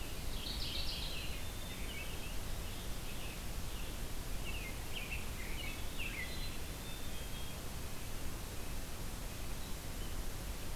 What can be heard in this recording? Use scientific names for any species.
Geothlypis philadelphia, Piranga olivacea, Turdus migratorius, Catharus fuscescens, Poecile atricapillus, Sitta canadensis